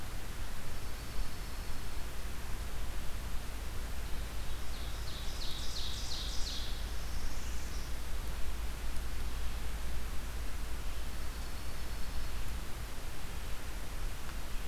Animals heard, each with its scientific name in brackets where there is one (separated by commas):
Northern Parula (Setophaga americana), Ovenbird (Seiurus aurocapilla), Dark-eyed Junco (Junco hyemalis)